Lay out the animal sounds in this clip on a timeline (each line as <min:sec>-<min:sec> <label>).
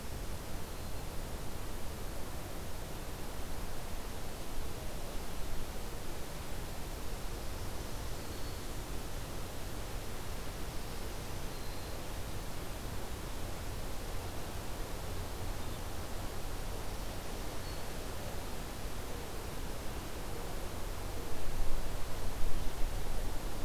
0:00.0-0:01.1 Black-throated Green Warbler (Setophaga virens)
0:07.0-0:08.7 Black-throated Green Warbler (Setophaga virens)
0:11.0-0:11.9 Black-throated Green Warbler (Setophaga virens)
0:16.8-0:17.9 Black-throated Green Warbler (Setophaga virens)